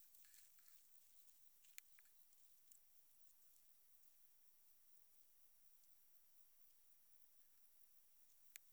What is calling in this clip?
Metrioptera saussuriana, an orthopteran